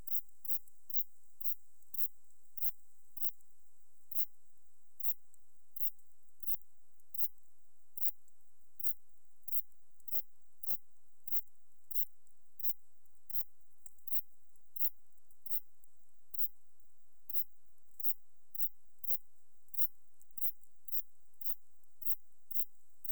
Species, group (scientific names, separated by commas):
Ephippiger diurnus, Orthoptera